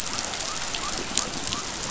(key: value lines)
label: biophony
recorder: SoundTrap 500